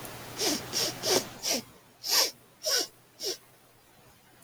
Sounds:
Sniff